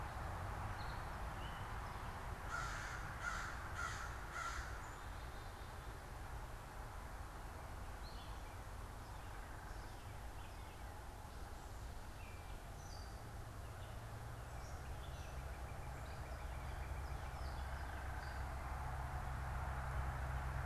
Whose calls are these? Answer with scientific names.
Dumetella carolinensis, Corvus brachyrhynchos, unidentified bird, Cardinalis cardinalis